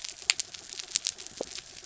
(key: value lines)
label: anthrophony, mechanical
recorder: SoundTrap 300